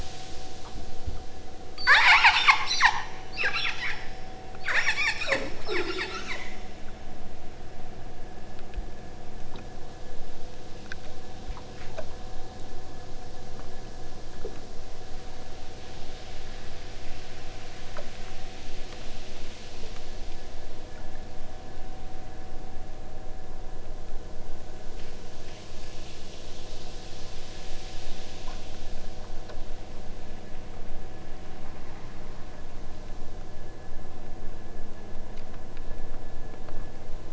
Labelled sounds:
1.7	4.1	killer whale, southern Alaska resident, 0.71 to 8.0 kHz
4.6	6.5	killer whale, southern Alaska resident, 0.51 to 8.0 kHz

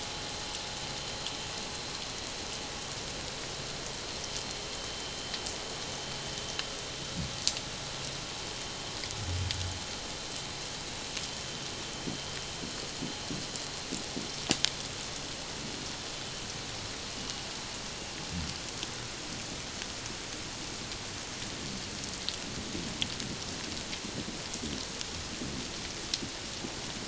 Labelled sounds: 17.2	17.4	vessel noise, 2.8 to 2.9 kHz

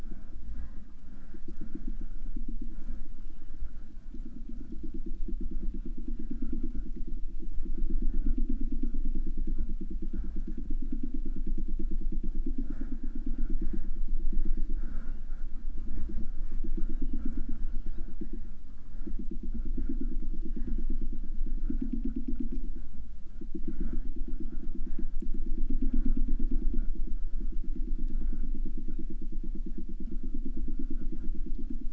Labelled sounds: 7.1	7.5	killer whale, 2.2 to 3.4 kHz
14.3	15.3	killer whale, southern resident, J pod, call S01, 2.5 to 5.0 kHz
16.7	18.4	killer whale, southern resident, J pod, call S01, 2.0 to 7.5 kHz
20.2	21.2	killer whale, 2.3 to 7.1 kHz
23.5	24.2	killer whale, southern resident, J pod, call S01, 1.5 to 4.8 kHz
27.7	29.1	killer whale, 1.5 to 4.0 kHz

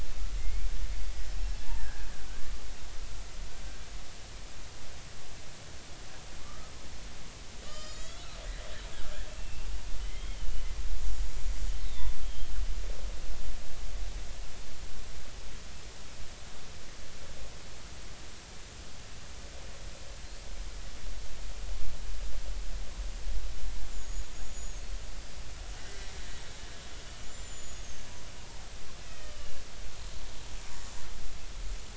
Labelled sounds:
0.4	0.7	killer whale, Bigg's (transient), 2.0 to 2.4 kHz
1.8	2.1	killer whale, Bigg's (transient), 1.5 to 1.8 kHz
6.4	6.7	killer whale, Bigg's (transient), 1.1 to 1.3 kHz
7.6	8.2	killer whale, Bigg's (transient), 1.1 to 7.5 kHz
9.4	10.4	killer whale, Bigg's (transient), 2.0 to 3.3 kHz
11.8	12.5	killer whale, Bigg's (transient), 3.0 to 4.0 kHz
23.9	24.8	killer whale, Bigg's (transient), 6.4 to 7.2 kHz
25.9	26.1	killer whale, Bigg's (transient), 1.9 to 2.0 kHz
27.2	28.1	killer whale, Bigg's (transient), 6.2 to 7.3 kHz
29.0	29.6	killer whale, Bigg's (transient), 1.1 to 3.2 kHz

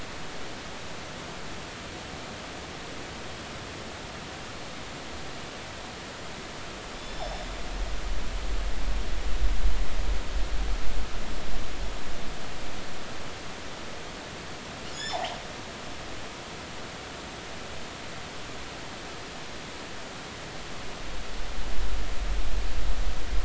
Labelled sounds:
6.9	7.4	killer whale, northern resident, G clan, GG subclan, call N28, 3.4 to 5.4 kHz
14.9	15.4	killer whale, northern resident, G clan, GG subclan, call N28, 0.80 to 7.2 kHz

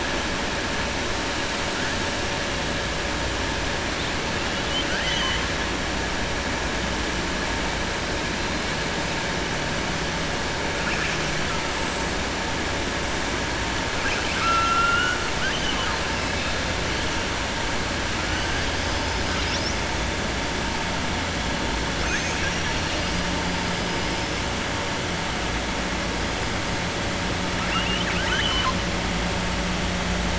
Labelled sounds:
4.4	5.5	killer whale, southern resident, 1.1 to 4.0 kHz
13.9	16.0	killer whale, southern resident, 1.0 to 5.0 kHz
22.0	23.2	killer whale, southern resident, 1.4 to 5.6 kHz
27.6	28.8	killer whale, southern resident, 0.99 to 4.5 kHz

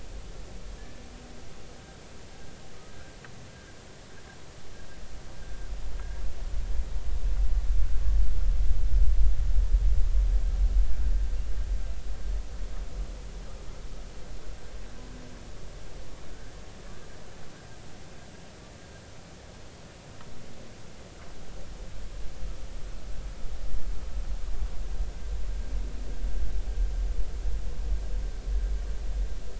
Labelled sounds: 16.3	16.6	humpback whale, 1.4 to 1.8 kHz

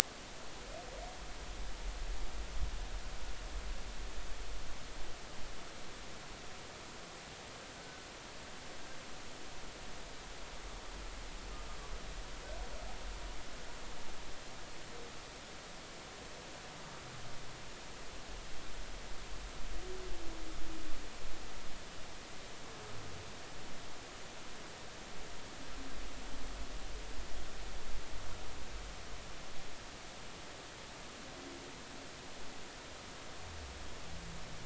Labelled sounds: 7.8	8.0	humpback whale, 1.47 to 1.54 kHz

